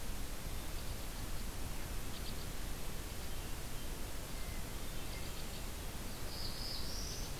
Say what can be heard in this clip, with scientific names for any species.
Loxia leucoptera, Catharus guttatus, Setophaga caerulescens